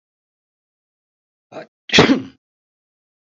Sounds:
Sneeze